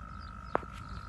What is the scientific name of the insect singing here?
Gryllotalpa gryllotalpa